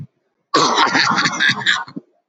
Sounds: Cough